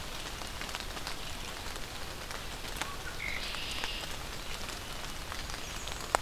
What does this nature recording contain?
Red-winged Blackbird, Blackburnian Warbler